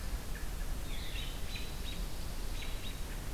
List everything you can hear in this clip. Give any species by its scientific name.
Vireo olivaceus, Turdus migratorius